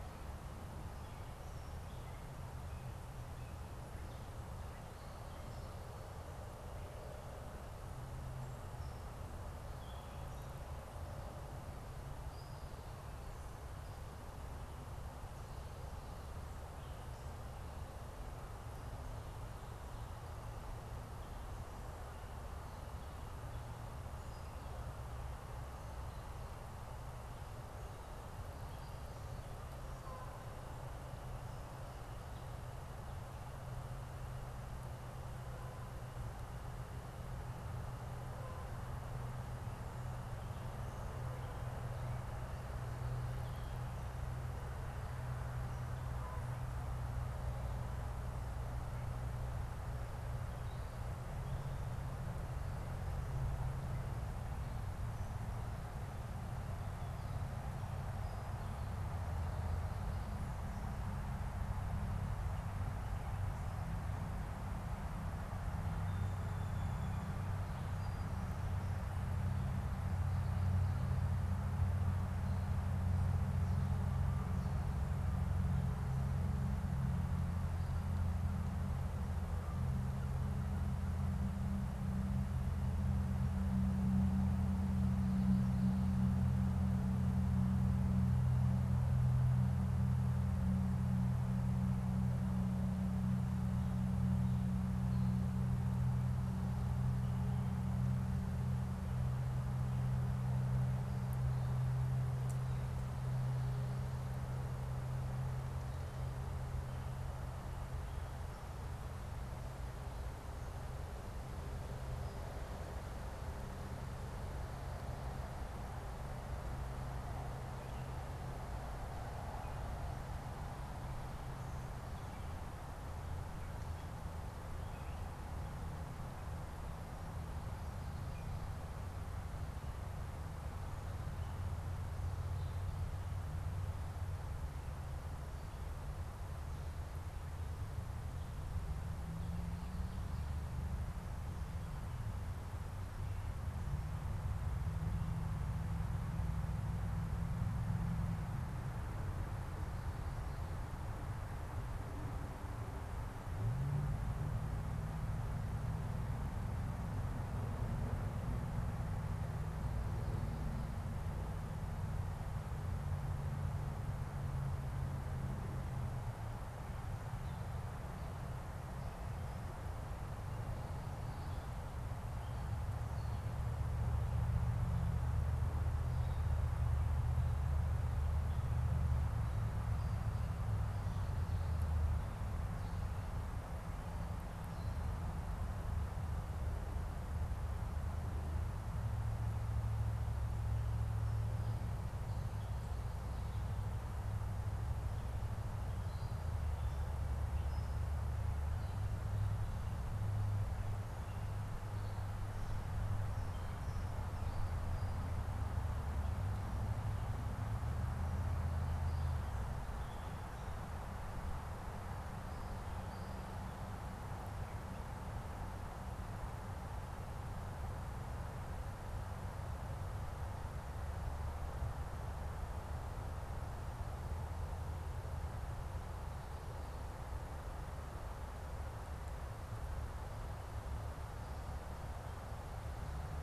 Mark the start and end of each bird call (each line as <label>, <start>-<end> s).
Gray Catbird (Dumetella carolinensis), 0.7-5.5 s
Gray Catbird (Dumetella carolinensis), 9.6-13.0 s
Canada Goose (Branta canadensis), 46.0-48.7 s
Gray Catbird (Dumetella carolinensis), 50.4-51.9 s
Song Sparrow (Melospiza melodia), 65.7-69.4 s
Gray Catbird (Dumetella carolinensis), 195.9-198.2 s